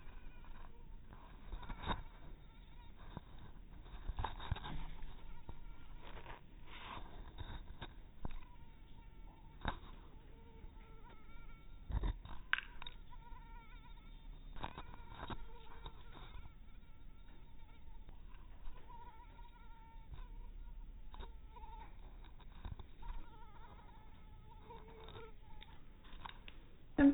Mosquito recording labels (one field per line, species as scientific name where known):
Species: mosquito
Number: one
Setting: cup